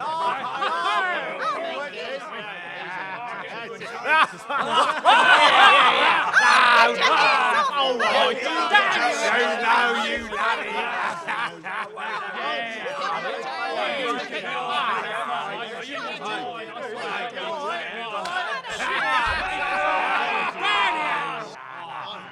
Is this at a funeral?
no